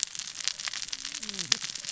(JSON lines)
{"label": "biophony, cascading saw", "recorder": "SoundTrap 600 or HydroMoth"}